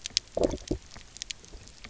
{"label": "biophony, low growl", "recorder": "SoundTrap 300"}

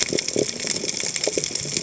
{"label": "biophony", "recorder": "HydroMoth"}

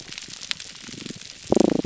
{"label": "biophony, damselfish", "recorder": "SoundTrap 300"}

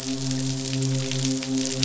{"label": "biophony, midshipman", "recorder": "SoundTrap 500"}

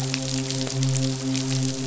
{"label": "biophony, midshipman", "recorder": "SoundTrap 500"}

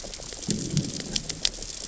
{"label": "biophony, growl", "recorder": "SoundTrap 600 or HydroMoth"}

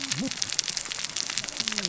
{"label": "biophony, cascading saw", "recorder": "SoundTrap 600 or HydroMoth"}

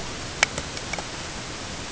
{"label": "ambient", "recorder": "HydroMoth"}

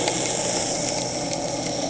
{"label": "anthrophony, boat engine", "recorder": "HydroMoth"}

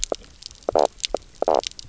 {"label": "biophony, knock croak", "recorder": "SoundTrap 300"}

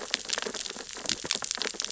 {"label": "biophony, sea urchins (Echinidae)", "recorder": "SoundTrap 600 or HydroMoth"}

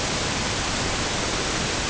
{"label": "ambient", "recorder": "HydroMoth"}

